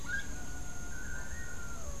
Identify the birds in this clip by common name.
Gray-headed Chachalaca, Long-tailed Manakin